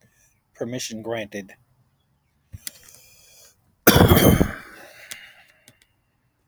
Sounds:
Cough